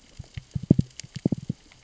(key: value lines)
label: biophony, knock
recorder: SoundTrap 600 or HydroMoth